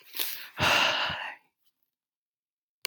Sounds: Sigh